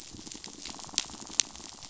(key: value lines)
label: biophony
recorder: SoundTrap 500